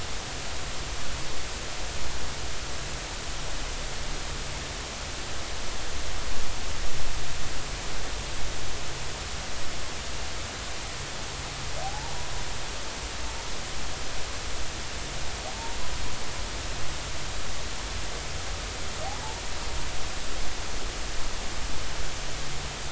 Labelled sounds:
11.8	12.3	humpback whale, 0.80 to 1.1 kHz

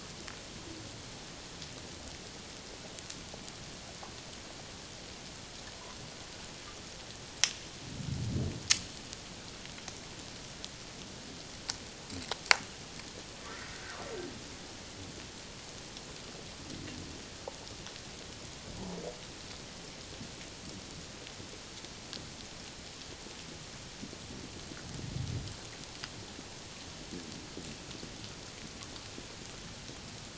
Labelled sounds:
18.7	19.0	humpback whale, 0.81 to 1.0 kHz

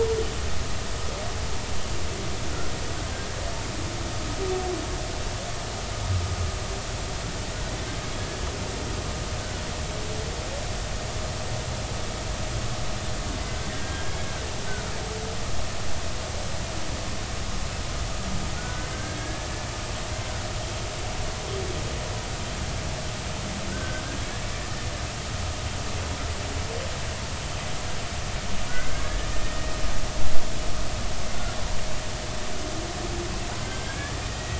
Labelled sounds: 13.7	14.2	humpback whale, 1.5 to 3.2 kHz
18.6	19.5	humpback whale, 1.4 to 1.8 kHz
23.7	24.0	humpback whale, 1.4 to 1.6 kHz
28.7	29.7	humpback whale, 1.4 to 1.9 kHz
33.7	34.5	humpback whale, 1.5 to 2.4 kHz

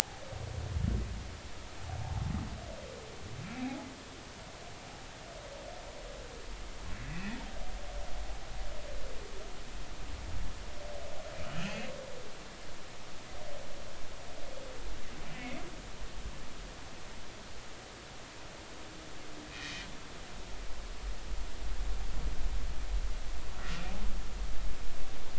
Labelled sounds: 3.6	3.9	humpback whale, 0.80 to 0.90 kHz
7.1	7.4	humpback whale, 2.3 to 2.7 kHz
11.4	11.9	humpback whale, 2.4 to 3.0 kHz
19.5	19.9	humpback whale, 1.8 to 2.6 kHz

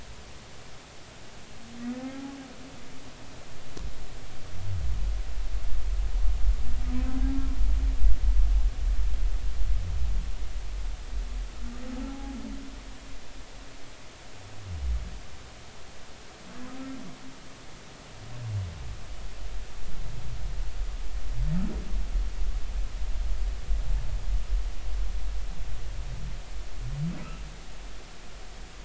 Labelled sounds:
2.0	2.3	humpback whale, 1.3 to 1.4 kHz
12.0	12.4	humpback whale, 0.80 to 0.90 kHz

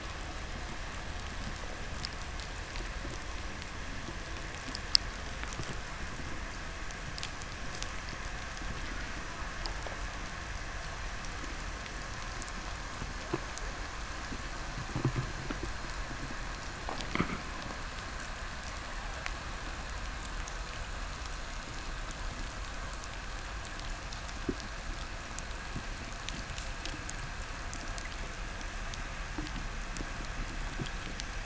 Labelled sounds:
4.1	8.0	undetermined biological sound, 2.2 to 8.0 kHz

